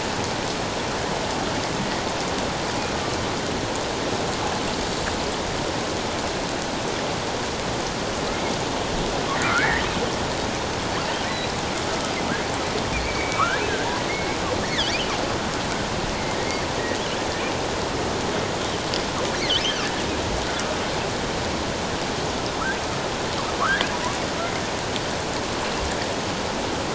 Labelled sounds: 9.4	9.9	killer whale, offshore, 1.2 to 2.0 kHz
13.0	14.4	killer whale, offshore, 1.0 to 2.4 kHz
23.6	23.9	killer whale, offshore, 0.97 to 1.8 kHz

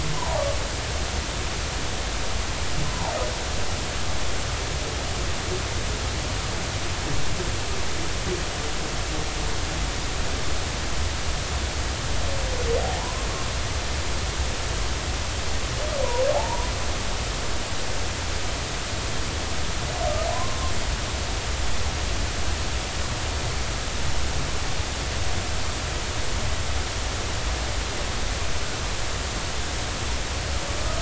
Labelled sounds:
0.1	0.4	humpback whale, 0.80 to 1.1 kHz
2.8	3.1	humpback whale, 0.80 to 1.1 kHz
12.8	13.3	humpback whale, 0.80 to 1.1 kHz
16.3	16.7	humpback whale, 0.80 to 1.0 kHz
20.3	20.7	humpback whale, 0.96 to 1.2 kHz

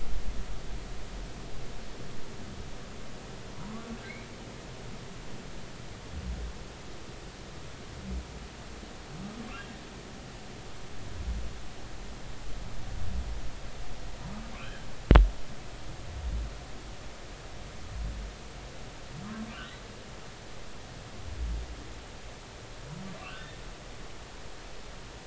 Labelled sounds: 4.0	4.3	humpback whale, 1.9 to 2.4 kHz
14.5	14.9	humpback whale, 2.1 to 3.2 kHz
23.2	23.6	humpback whale, 1.0 to 3.0 kHz

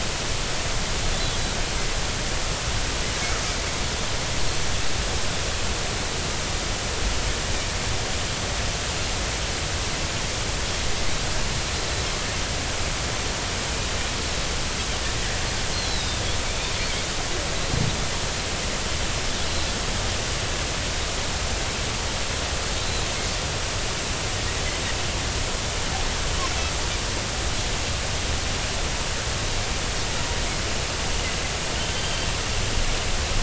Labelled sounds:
15.7	16.2	Pacific white-sided dolphin, 3.6 to 4.4 kHz
22.8	23.1	Pacific white-sided dolphin, 3.8 to 4.2 kHz
31.9	32.3	Pacific white-sided dolphin, 3.1 to 3.3 kHz

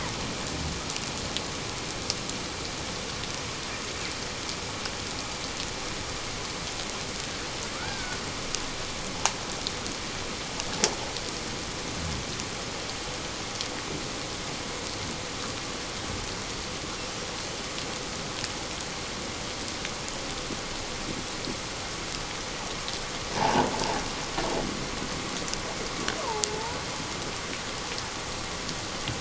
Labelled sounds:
7.8	8.2	killer whale, Bigg's (transient), 1.3 to 1.7 kHz
23.4	23.7	killer whale, Bigg's (transient), 0.78 to 1.0 kHz
26.5	26.8	killer whale, Bigg's (transient), 0.84 to 1.0 kHz

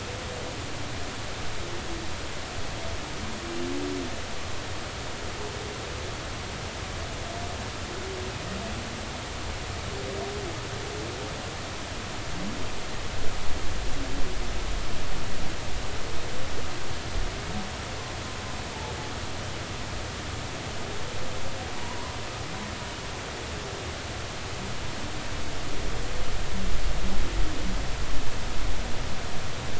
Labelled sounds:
21.8	22.1	humpback whale, 0.90 to 1.1 kHz

